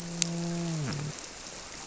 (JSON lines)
{"label": "biophony, grouper", "recorder": "SoundTrap 300"}